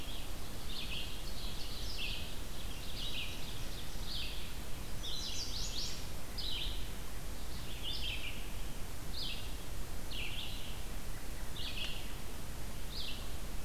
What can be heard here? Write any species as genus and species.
Vireo olivaceus, Seiurus aurocapilla, Setophaga pensylvanica, Turdus migratorius